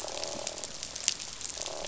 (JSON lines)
{"label": "biophony, croak", "recorder": "SoundTrap 500"}